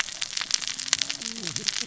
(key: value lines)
label: biophony, cascading saw
recorder: SoundTrap 600 or HydroMoth